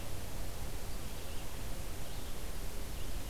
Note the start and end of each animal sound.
0.0s-3.3s: Red-eyed Vireo (Vireo olivaceus)

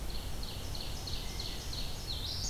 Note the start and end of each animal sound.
0.0s-2.3s: Ovenbird (Seiurus aurocapilla)

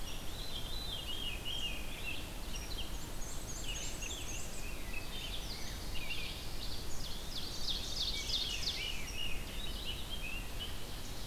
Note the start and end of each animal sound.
0.0s-11.3s: Red-eyed Vireo (Vireo olivaceus)
0.2s-2.0s: Veery (Catharus fuscescens)
2.9s-4.5s: Black-and-white Warbler (Mniotilta varia)
3.1s-5.8s: Rose-breasted Grosbeak (Pheucticus ludovicianus)
4.8s-9.2s: Ovenbird (Seiurus aurocapilla)
8.2s-9.4s: Veery (Catharus fuscescens)
8.3s-10.8s: Rose-breasted Grosbeak (Pheucticus ludovicianus)
10.4s-11.3s: Ovenbird (Seiurus aurocapilla)

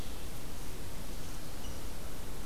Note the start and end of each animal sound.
1.6s-1.8s: Rose-breasted Grosbeak (Pheucticus ludovicianus)

